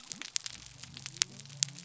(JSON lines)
{"label": "biophony", "recorder": "SoundTrap 300"}